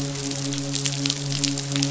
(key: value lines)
label: biophony, midshipman
recorder: SoundTrap 500